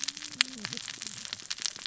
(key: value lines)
label: biophony, cascading saw
recorder: SoundTrap 600 or HydroMoth